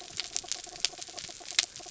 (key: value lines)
label: anthrophony, mechanical
recorder: SoundTrap 300